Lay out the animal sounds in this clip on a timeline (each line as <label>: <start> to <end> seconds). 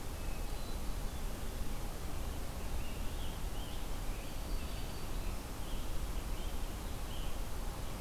Hermit Thrush (Catharus guttatus): 0.0 to 1.1 seconds
Scarlet Tanager (Piranga olivacea): 2.5 to 7.5 seconds
Black-throated Green Warbler (Setophaga virens): 4.1 to 5.6 seconds